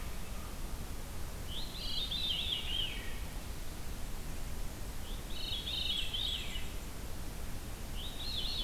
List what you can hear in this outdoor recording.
American Crow, Red-eyed Vireo, Veery